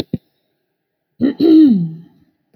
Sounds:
Throat clearing